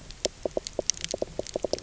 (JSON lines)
{"label": "biophony, knock croak", "recorder": "SoundTrap 300"}